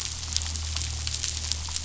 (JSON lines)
{"label": "anthrophony, boat engine", "recorder": "SoundTrap 500"}